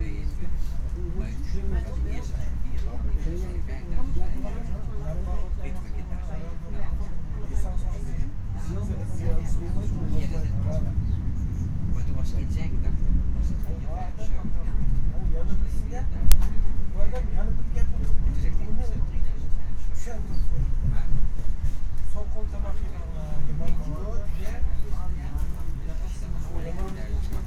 Is it loud?
no